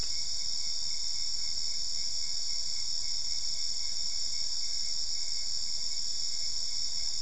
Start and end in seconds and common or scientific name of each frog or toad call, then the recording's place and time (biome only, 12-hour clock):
none
Cerrado, 10:15pm